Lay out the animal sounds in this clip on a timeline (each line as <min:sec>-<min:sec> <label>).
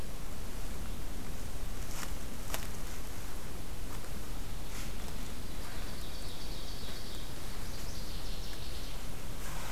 0:05.5-0:07.2 Ovenbird (Seiurus aurocapilla)
0:07.7-0:09.1 Northern Waterthrush (Parkesia noveboracensis)